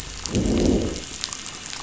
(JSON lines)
{"label": "biophony, growl", "recorder": "SoundTrap 500"}